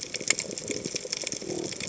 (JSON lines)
{"label": "biophony", "recorder": "HydroMoth"}